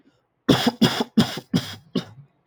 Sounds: Cough